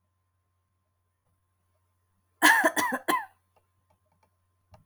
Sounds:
Cough